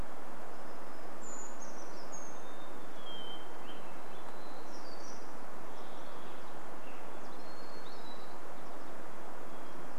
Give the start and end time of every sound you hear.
[0, 4] Brown Creeper song
[2, 4] Hermit Thrush song
[4, 6] warbler song
[4, 8] Varied Thrush song
[6, 10] Hermit Thrush song
[8, 10] American Goldfinch call

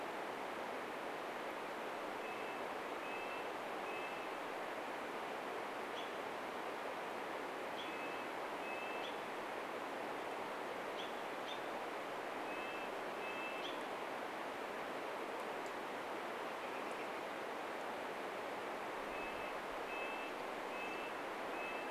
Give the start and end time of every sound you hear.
[2, 10] Red-breasted Nuthatch song
[6, 14] American Robin call
[12, 14] Red-breasted Nuthatch song
[16, 18] American Robin call
[18, 22] Red-breasted Nuthatch song
[20, 22] unidentified bird chip note

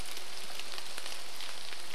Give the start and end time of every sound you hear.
[0, 2] rain

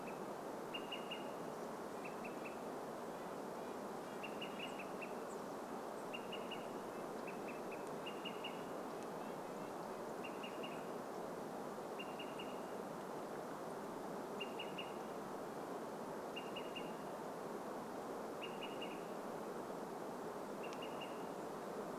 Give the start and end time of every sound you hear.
[0, 2] Red-breasted Nuthatch song
[0, 22] Olive-sided Flycatcher call
[4, 6] unidentified bird chip note
[4, 8] Red-breasted Nuthatch song

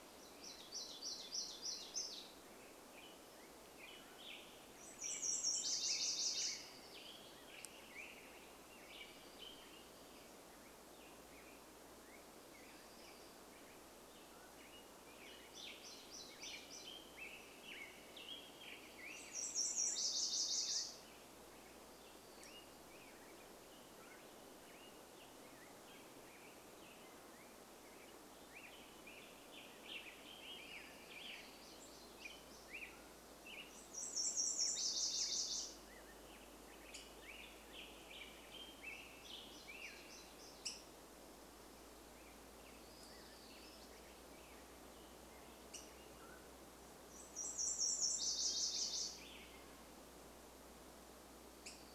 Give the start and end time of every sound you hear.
[0, 4] warbler song
[2, 40] Black-headed Grosbeak song
[4, 8] Nashville Warbler song
[4, 10] Western Tanager song
[14, 16] Mountain Quail call
[14, 18] warbler song
[18, 22] Nashville Warbler song
[28, 32] Western Tanager song
[30, 34] warbler song
[32, 36] Nashville Warbler song
[36, 38] Black-headed Grosbeak call
[38, 42] warbler song
[40, 42] Black-headed Grosbeak call
[42, 44] unidentified sound
[42, 46] Black-headed Grosbeak song
[44, 46] Black-headed Grosbeak call
[46, 48] Mountain Quail call
[46, 50] Nashville Warbler song
[48, 50] Black-headed Grosbeak song
[50, 52] Black-headed Grosbeak call

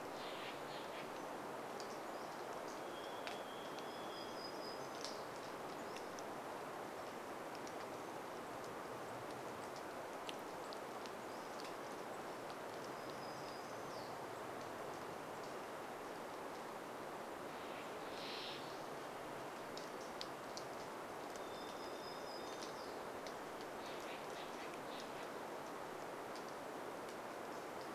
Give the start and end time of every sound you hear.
[0, 2] Steller's Jay call
[0, 28] rain
[2, 6] Varied Thrush song
[2, 6] warbler song
[8, 16] unidentified bird chip note
[10, 12] Pacific-slope Flycatcher song
[12, 14] warbler song
[16, 20] Steller's Jay call
[20, 24] Varied Thrush song
[20, 24] warbler song

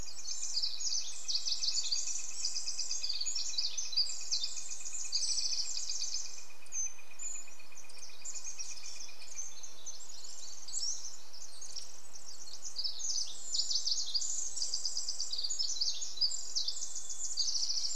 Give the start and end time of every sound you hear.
[0, 10] Northern Flicker call
[0, 18] Pacific Wren song
[2, 4] Chestnut-backed Chickadee call
[2, 4] Hermit Thrush song
[4, 8] Brown Creeper call
[8, 10] Chestnut-backed Chickadee call
[8, 10] Hermit Thrush song
[10, 12] Pacific-slope Flycatcher song
[10, 18] Red-breasted Nuthatch song
[16, 18] Chestnut-backed Chickadee call
[16, 18] Hermit Thrush song

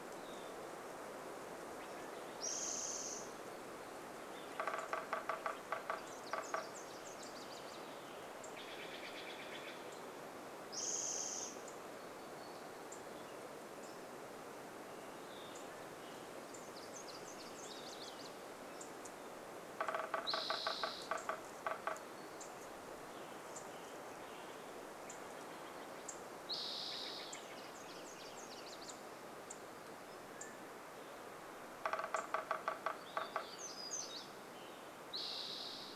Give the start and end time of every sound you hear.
[0, 2] Steller's Jay call
[0, 2] unidentified sound
[2, 4] Spotted Towhee song
[4, 6] unidentified bird chip note
[4, 8] woodpecker drumming
[6, 8] Nashville Warbler song
[8, 10] Steller's Jay call
[8, 16] unidentified bird chip note
[10, 12] Spotted Towhee song
[12, 16] unidentified sound
[16, 20] Nashville Warbler song
[16, 20] Olive-sided Flycatcher song
[18, 22] woodpecker drumming
[18, 34] unidentified bird chip note
[20, 22] Spotted Towhee song
[22, 26] Western Tanager song
[26, 28] Spotted Towhee song
[26, 28] Steller's Jay call
[26, 30] Nashville Warbler song
[28, 30] unidentified sound
[30, 32] Mountain Quail call
[30, 34] woodpecker drumming
[32, 36] warbler song
[34, 36] Spotted Towhee song

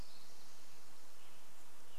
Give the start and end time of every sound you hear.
[0, 2] Spotted Towhee song
[0, 2] Western Tanager song

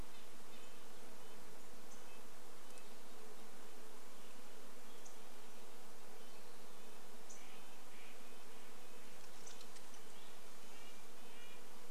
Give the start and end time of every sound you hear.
[0, 2] unidentified bird chip note
[0, 4] Red-breasted Nuthatch song
[0, 12] insect buzz
[4, 10] unidentified bird chip note
[6, 8] Western Wood-Pewee song
[6, 12] Red-breasted Nuthatch song
[8, 10] unidentified sound

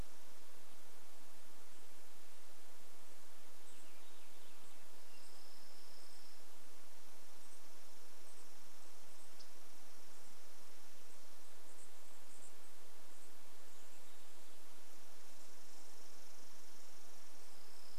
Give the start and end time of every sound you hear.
[2, 6] Warbling Vireo song
[4, 12] Chipping Sparrow song
[4, 18] unidentified bird chip note
[14, 18] Chipping Sparrow song

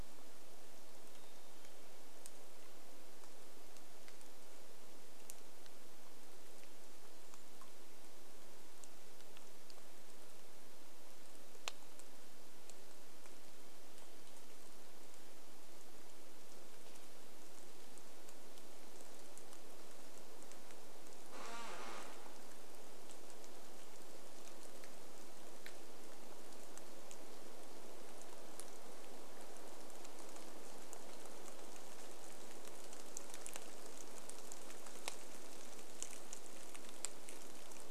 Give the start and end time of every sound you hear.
[0, 2] Black-capped Chickadee song
[0, 38] rain
[6, 8] Brown Creeper call
[20, 22] tree creak

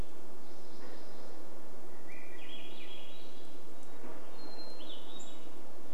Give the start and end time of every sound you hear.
[0, 2] warbler song
[0, 6] vehicle engine
[2, 4] Swainson's Thrush song
[4, 6] Hermit Thrush song
[4, 6] unidentified bird chip note

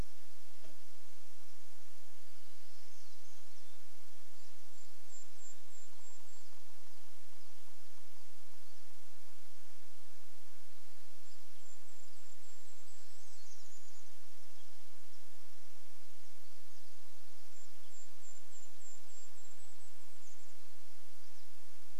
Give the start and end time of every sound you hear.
[0, 2] unidentified sound
[2, 4] warbler song
[2, 22] Pine Siskin call
[4, 8] Golden-crowned Kinglet song
[4, 10] woodpecker drumming
[10, 14] Golden-crowned Kinglet song
[12, 14] warbler song
[16, 22] Golden-crowned Kinglet song

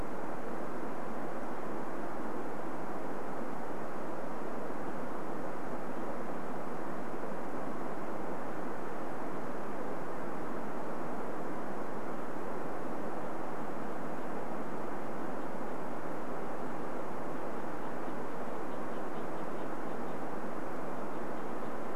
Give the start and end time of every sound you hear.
[14, 16] Red-breasted Nuthatch song
[18, 22] Red-breasted Nuthatch song

